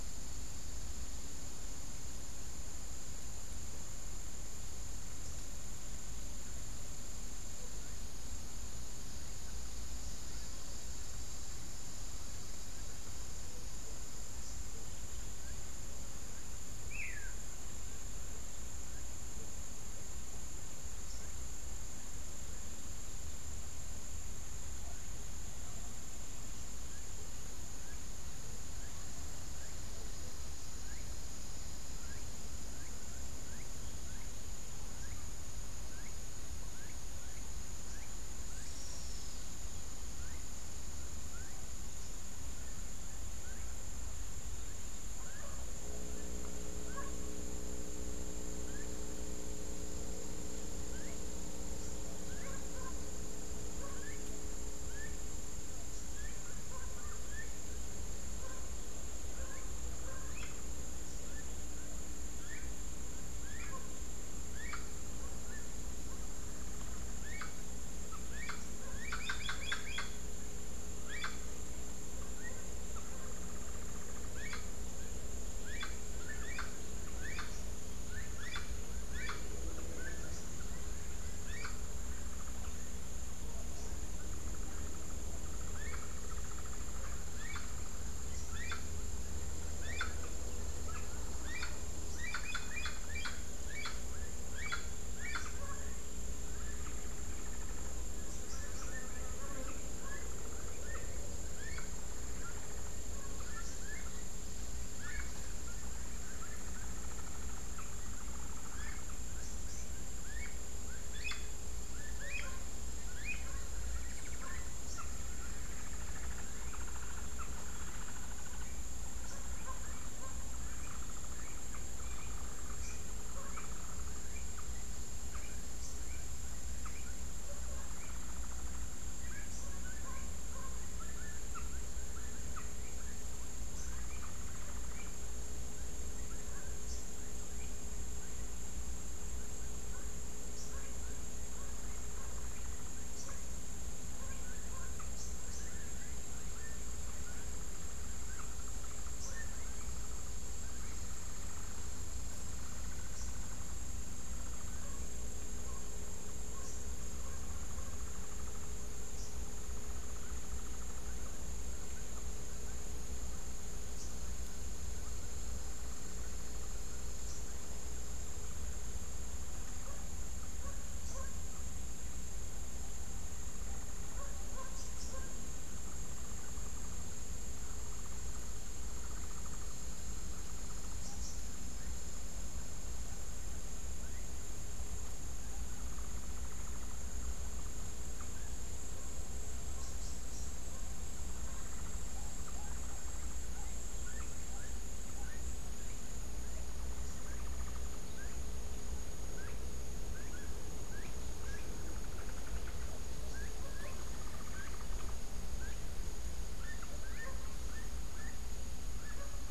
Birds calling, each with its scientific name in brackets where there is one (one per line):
Tennessee Warbler (Leiothlypis peregrina)
Tropical Kingbird (Tyrannus melancholicus)
Hoffmann's Woodpecker (Melanerpes hoffmannii)
Rufous-capped Warbler (Basileuterus rufifrons)
Gray-headed Chachalaca (Ortalis cinereiceps)
Clay-colored Thrush (Turdus grayi)